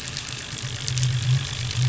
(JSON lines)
{"label": "anthrophony, boat engine", "recorder": "SoundTrap 500"}